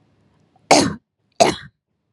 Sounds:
Cough